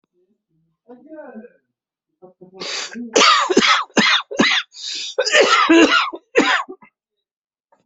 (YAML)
expert_labels:
- quality: good
  cough_type: dry
  dyspnea: false
  wheezing: false
  stridor: true
  choking: false
  congestion: false
  nothing: false
  diagnosis: obstructive lung disease
  severity: unknown
age: 58
gender: male
respiratory_condition: true
fever_muscle_pain: true
status: COVID-19